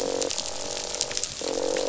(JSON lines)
{"label": "biophony, croak", "recorder": "SoundTrap 500"}